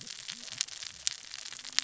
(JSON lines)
{"label": "biophony, cascading saw", "recorder": "SoundTrap 600 or HydroMoth"}